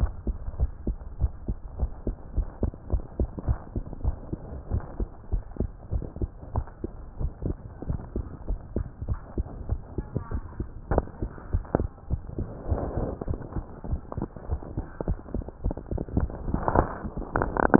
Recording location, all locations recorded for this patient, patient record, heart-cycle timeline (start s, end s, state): tricuspid valve (TV)
aortic valve (AV)+pulmonary valve (PV)+tricuspid valve (TV)+mitral valve (MV)
#Age: Child
#Sex: Female
#Height: 115.0 cm
#Weight: 15.7 kg
#Pregnancy status: False
#Murmur: Absent
#Murmur locations: nan
#Most audible location: nan
#Systolic murmur timing: nan
#Systolic murmur shape: nan
#Systolic murmur grading: nan
#Systolic murmur pitch: nan
#Systolic murmur quality: nan
#Diastolic murmur timing: nan
#Diastolic murmur shape: nan
#Diastolic murmur grading: nan
#Diastolic murmur pitch: nan
#Diastolic murmur quality: nan
#Outcome: Normal
#Campaign: 2015 screening campaign
0.00	0.14	S1
0.14	0.26	systole
0.26	0.40	S2
0.40	0.58	diastole
0.58	0.74	S1
0.74	0.86	systole
0.86	0.96	S2
0.96	1.16	diastole
1.16	1.32	S1
1.32	1.46	systole
1.46	1.58	S2
1.58	1.76	diastole
1.76	1.90	S1
1.90	2.06	systole
2.06	2.16	S2
2.16	2.36	diastole
2.36	2.48	S1
2.48	2.62	systole
2.62	2.72	S2
2.72	2.90	diastole
2.90	3.04	S1
3.04	3.18	systole
3.18	3.30	S2
3.30	3.46	diastole
3.46	3.58	S1
3.58	3.74	systole
3.74	3.84	S2
3.84	4.03	diastole
4.03	4.16	S1
4.16	4.31	systole
4.31	4.42	S2
4.42	4.70	diastole
4.70	4.84	S1
4.84	4.98	systole
4.98	5.08	S2
5.08	5.30	diastole
5.30	5.44	S1
5.44	5.60	systole
5.60	5.72	S2
5.72	5.92	diastole
5.92	6.04	S1
6.04	6.20	systole
6.20	6.30	S2
6.30	6.54	diastole
6.54	6.66	S1
6.66	6.82	systole
6.82	6.94	S2
6.94	7.18	diastole
7.18	7.32	S1
7.32	7.44	systole
7.44	7.58	S2
7.58	7.82	diastole
7.82	7.98	S1
7.98	8.14	systole
8.14	8.26	S2
8.26	8.48	diastole
8.48	8.60	S1
8.60	8.74	systole
8.74	8.86	S2
8.86	9.06	diastole
9.06	9.20	S1
9.20	9.36	systole
9.36	9.46	S2
9.46	9.66	diastole
9.66	9.80	S1
9.80	9.96	systole
9.96	10.08	S2
10.08	10.32	diastole
10.32	10.46	S1
10.46	10.58	systole
10.58	10.68	S2
10.68	10.88	diastole